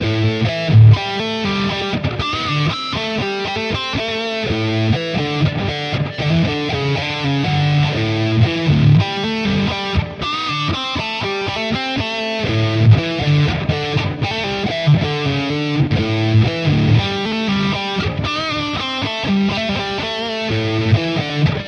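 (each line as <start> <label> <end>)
0.0 An electric guitar is being played. 21.7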